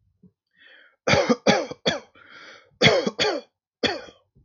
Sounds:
Cough